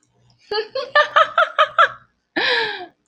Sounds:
Laughter